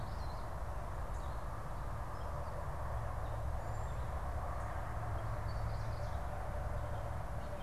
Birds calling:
Cedar Waxwing (Bombycilla cedrorum), Common Yellowthroat (Geothlypis trichas)

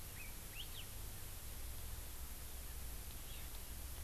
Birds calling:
Hawaii Elepaio (Chasiempis sandwichensis)

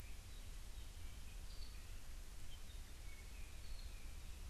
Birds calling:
Apapane (Himatione sanguinea)

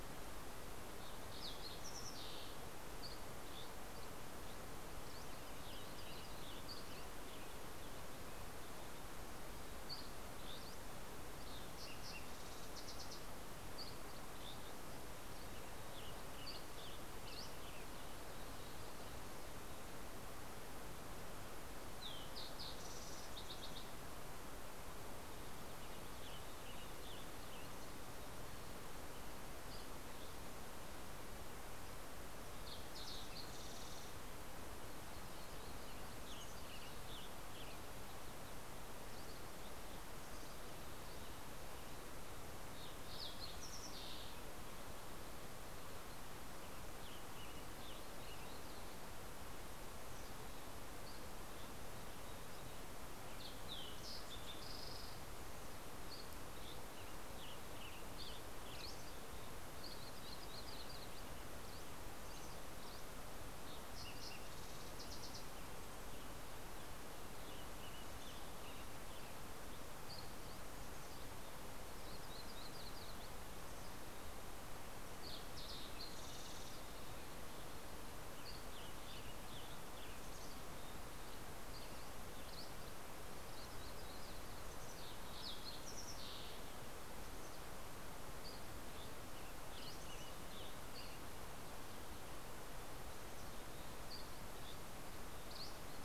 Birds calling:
Fox Sparrow (Passerella iliaca), Yellow-rumped Warbler (Setophaga coronata), Dusky Flycatcher (Empidonax oberholseri), Western Tanager (Piranga ludoviciana)

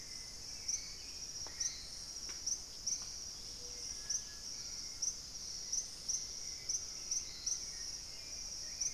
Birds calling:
Dusky-capped Greenlet (Pachysylvia hypoxantha), unidentified bird, Hauxwell's Thrush (Turdus hauxwelli)

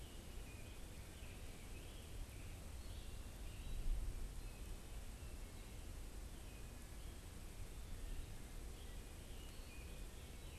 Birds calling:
unidentified bird

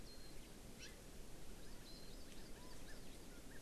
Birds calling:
Warbling White-eye (Zosterops japonicus), Hawaii Amakihi (Chlorodrepanis virens)

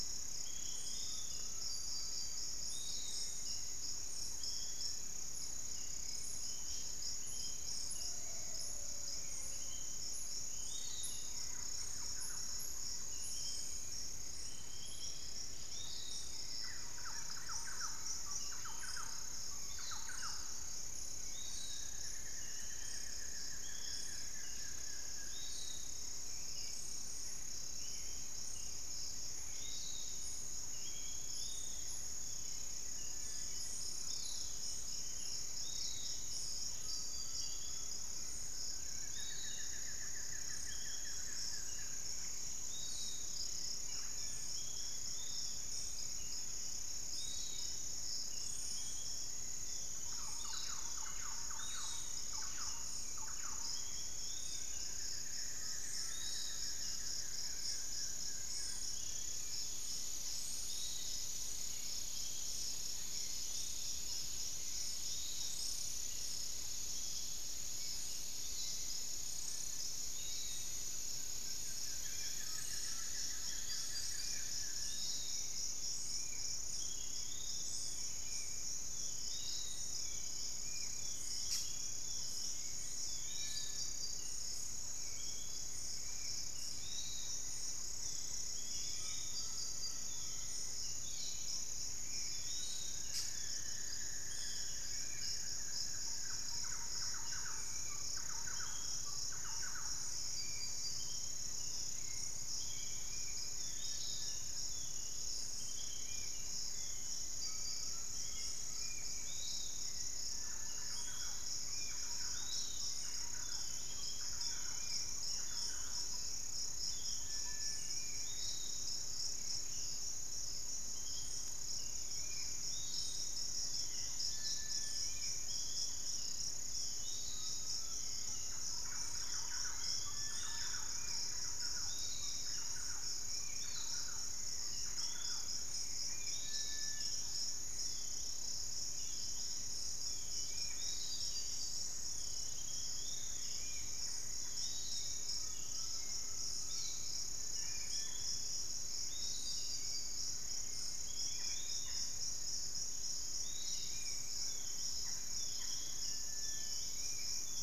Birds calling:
Cinereous Tinamou (Crypturellus cinereus), Undulated Tinamou (Crypturellus undulatus), Long-winged Antwren (Myrmotherula longipennis), Hauxwell's Thrush (Turdus hauxwelli), Buff-throated Woodcreeper (Xiphorhynchus guttatus), unidentified bird, Thrush-like Wren (Campylorhynchus turdinus), Piratic Flycatcher (Legatus leucophaius), Spot-winged Antshrike (Pygiptila stellaris), Little Tinamou (Crypturellus soui)

